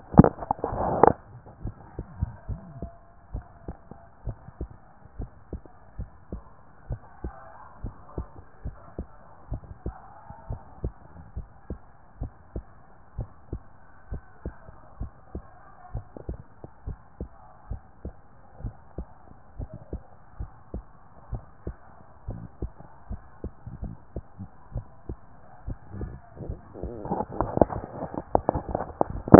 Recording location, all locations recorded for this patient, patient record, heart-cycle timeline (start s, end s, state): tricuspid valve (TV)
pulmonary valve (PV)+tricuspid valve (TV)+mitral valve (MV)
#Age: Child
#Sex: Female
#Height: 142.0 cm
#Weight: 34.6 kg
#Pregnancy status: False
#Murmur: Absent
#Murmur locations: nan
#Most audible location: nan
#Systolic murmur timing: nan
#Systolic murmur shape: nan
#Systolic murmur grading: nan
#Systolic murmur pitch: nan
#Systolic murmur quality: nan
#Diastolic murmur timing: nan
#Diastolic murmur shape: nan
#Diastolic murmur grading: nan
#Diastolic murmur pitch: nan
#Diastolic murmur quality: nan
#Outcome: Abnormal
#Campaign: 2014 screening campaign
0.00	1.62	unannotated
1.62	1.74	S1
1.74	1.96	systole
1.96	2.06	S2
2.06	2.48	diastole
2.48	2.60	S1
2.60	2.80	systole
2.80	2.90	S2
2.90	3.32	diastole
3.32	3.44	S1
3.44	3.66	systole
3.66	3.76	S2
3.76	4.26	diastole
4.26	4.38	S1
4.38	4.60	systole
4.60	4.70	S2
4.70	5.18	diastole
5.18	5.30	S1
5.30	5.52	systole
5.52	5.62	S2
5.62	5.98	diastole
5.98	6.10	S1
6.10	6.32	systole
6.32	6.42	S2
6.42	6.88	diastole
6.88	7.00	S1
7.00	7.24	systole
7.24	7.34	S2
7.34	7.82	diastole
7.82	7.94	S1
7.94	8.16	systole
8.16	8.28	S2
8.28	8.64	diastole
8.64	8.76	S1
8.76	8.98	systole
8.98	9.06	S2
9.06	9.50	diastole
9.50	9.62	S1
9.62	9.84	systole
9.84	9.94	S2
9.94	10.48	diastole
10.48	10.60	S1
10.60	10.82	systole
10.82	10.94	S2
10.94	11.36	diastole
11.36	11.48	S1
11.48	11.70	systole
11.70	11.78	S2
11.78	12.20	diastole
12.20	12.32	S1
12.32	12.54	systole
12.54	12.64	S2
12.64	13.18	diastole
13.18	13.28	S1
13.28	13.52	systole
13.52	13.62	S2
13.62	14.10	diastole
14.10	14.22	S1
14.22	14.44	systole
14.44	14.54	S2
14.54	15.00	diastole
15.00	15.12	S1
15.12	15.34	systole
15.34	15.44	S2
15.44	15.94	diastole
15.94	16.06	S1
16.06	16.28	systole
16.28	16.38	S2
16.38	16.86	diastole
16.86	16.98	S1
16.98	17.20	systole
17.20	17.30	S2
17.30	17.70	diastole
17.70	17.82	S1
17.82	18.04	systole
18.04	18.14	S2
18.14	18.62	diastole
18.62	18.74	S1
18.74	18.98	systole
18.98	19.08	S2
19.08	19.58	diastole
19.58	19.70	S1
19.70	19.92	systole
19.92	20.02	S2
20.02	20.40	diastole
20.40	20.50	S1
20.50	20.74	systole
20.74	20.84	S2
20.84	21.32	diastole
21.32	21.42	S1
21.42	21.66	systole
21.66	21.76	S2
21.76	22.28	diastole
22.28	22.40	S1
22.40	22.62	systole
22.62	22.72	S2
22.72	23.10	diastole
23.10	29.39	unannotated